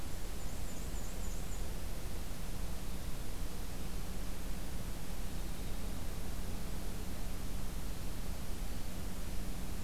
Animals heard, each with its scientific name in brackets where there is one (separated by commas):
Black-and-white Warbler (Mniotilta varia), Winter Wren (Troglodytes hiemalis)